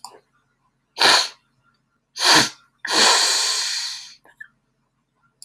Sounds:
Sniff